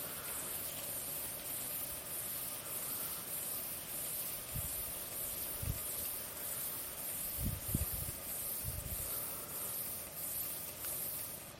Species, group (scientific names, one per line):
Stenobothrus lineatus
Orthoptera